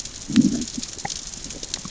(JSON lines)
{"label": "biophony, growl", "recorder": "SoundTrap 600 or HydroMoth"}